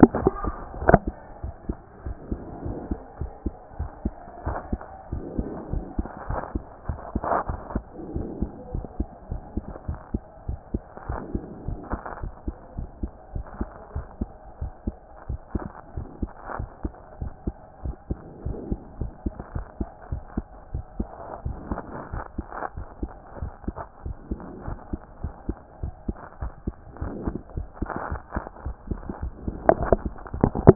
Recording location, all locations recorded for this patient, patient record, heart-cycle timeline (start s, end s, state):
mitral valve (MV)
aortic valve (AV)+pulmonary valve (PV)+tricuspid valve (TV)+mitral valve (MV)
#Age: Child
#Sex: Male
#Height: 124.0 cm
#Weight: 23.2 kg
#Pregnancy status: False
#Murmur: Absent
#Murmur locations: nan
#Most audible location: nan
#Systolic murmur timing: nan
#Systolic murmur shape: nan
#Systolic murmur grading: nan
#Systolic murmur pitch: nan
#Systolic murmur quality: nan
#Diastolic murmur timing: nan
#Diastolic murmur shape: nan
#Diastolic murmur grading: nan
#Diastolic murmur pitch: nan
#Diastolic murmur quality: nan
#Outcome: Abnormal
#Campaign: 2014 screening campaign
0.00	1.42	unannotated
1.42	1.54	S1
1.54	1.68	systole
1.68	1.76	S2
1.76	2.04	diastole
2.04	2.16	S1
2.16	2.30	systole
2.30	2.40	S2
2.40	2.64	diastole
2.64	2.78	S1
2.78	2.90	systole
2.90	2.98	S2
2.98	3.20	diastole
3.20	3.30	S1
3.30	3.44	systole
3.44	3.54	S2
3.54	3.78	diastole
3.78	3.90	S1
3.90	4.04	systole
4.04	4.14	S2
4.14	4.46	diastole
4.46	4.58	S1
4.58	4.70	systole
4.70	4.80	S2
4.80	5.12	diastole
5.12	5.24	S1
5.24	5.36	systole
5.36	5.48	S2
5.48	5.72	diastole
5.72	5.84	S1
5.84	5.96	systole
5.96	6.06	S2
6.06	6.28	diastole
6.28	6.40	S1
6.40	6.54	systole
6.54	6.64	S2
6.64	6.88	diastole
6.88	6.98	S1
6.98	7.14	systole
7.14	7.22	S2
7.22	7.48	diastole
7.48	7.60	S1
7.60	7.74	systole
7.74	7.84	S2
7.84	8.14	diastole
8.14	8.28	S1
8.28	8.40	systole
8.40	8.50	S2
8.50	8.74	diastole
8.74	8.86	S1
8.86	8.98	systole
8.98	9.08	S2
9.08	9.30	diastole
9.30	9.42	S1
9.42	9.56	systole
9.56	9.64	S2
9.64	9.88	diastole
9.88	9.98	S1
9.98	10.12	systole
10.12	10.22	S2
10.22	10.48	diastole
10.48	10.58	S1
10.58	10.72	systole
10.72	10.82	S2
10.82	11.08	diastole
11.08	11.20	S1
11.20	11.32	systole
11.32	11.42	S2
11.42	11.66	diastole
11.66	11.78	S1
11.78	11.92	systole
11.92	12.00	S2
12.00	12.22	diastole
12.22	12.32	S1
12.32	12.46	systole
12.46	12.56	S2
12.56	12.76	diastole
12.76	12.88	S1
12.88	13.02	systole
13.02	13.10	S2
13.10	13.34	diastole
13.34	13.46	S1
13.46	13.58	systole
13.58	13.68	S2
13.68	13.94	diastole
13.94	14.06	S1
14.06	14.20	systole
14.20	14.28	S2
14.28	14.60	diastole
14.60	14.72	S1
14.72	14.86	systole
14.86	14.94	S2
14.94	15.28	diastole
15.28	15.40	S1
15.40	15.54	systole
15.54	15.64	S2
15.64	15.96	diastole
15.96	16.08	S1
16.08	16.20	systole
16.20	16.30	S2
16.30	16.58	diastole
16.58	16.68	S1
16.68	16.84	systole
16.84	16.92	S2
16.92	17.20	diastole
17.20	17.32	S1
17.32	17.46	systole
17.46	17.54	S2
17.54	17.84	diastole
17.84	17.96	S1
17.96	18.10	systole
18.10	18.18	S2
18.18	18.46	diastole
18.46	18.58	S1
18.58	18.70	systole
18.70	18.78	S2
18.78	19.00	diastole
19.00	19.12	S1
19.12	19.24	systole
19.24	19.34	S2
19.34	19.54	diastole
19.54	19.66	S1
19.66	19.78	systole
19.78	19.88	S2
19.88	20.10	diastole
20.10	20.22	S1
20.22	20.36	systole
20.36	20.44	S2
20.44	20.72	diastole
20.72	20.84	S1
20.84	20.98	systole
20.98	21.08	S2
21.08	21.44	diastole
21.44	21.56	S1
21.56	21.70	systole
21.70	21.80	S2
21.80	22.12	diastole
22.12	22.24	S1
22.24	22.38	systole
22.38	22.46	S2
22.46	22.76	diastole
22.76	22.86	S1
22.86	23.00	systole
23.00	23.10	S2
23.10	23.40	diastole
23.40	23.52	S1
23.52	23.66	systole
23.66	23.74	S2
23.74	24.04	diastole
24.04	24.16	S1
24.16	24.30	systole
24.30	24.40	S2
24.40	24.66	diastole
24.66	24.78	S1
24.78	24.92	systole
24.92	25.00	S2
25.00	25.22	diastole
25.22	25.34	S1
25.34	25.48	systole
25.48	25.56	S2
25.56	25.82	diastole
25.82	25.94	S1
25.94	26.06	systole
26.06	26.16	S2
26.16	26.42	diastole
26.42	26.52	S1
26.52	26.66	systole
26.66	26.74	S2
26.74	27.00	diastole
27.00	30.75	unannotated